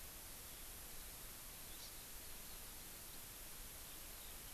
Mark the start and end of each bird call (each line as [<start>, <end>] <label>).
[1.71, 1.91] Hawaii Amakihi (Chlorodrepanis virens)
[3.81, 4.41] Eurasian Skylark (Alauda arvensis)